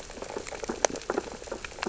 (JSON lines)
{"label": "biophony, sea urchins (Echinidae)", "recorder": "SoundTrap 600 or HydroMoth"}